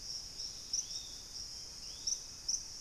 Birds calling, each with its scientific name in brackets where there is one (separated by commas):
Thrush-like Wren (Campylorhynchus turdinus), Yellow-margined Flycatcher (Tolmomyias assimilis), Dusky-capped Greenlet (Pachysylvia hypoxantha)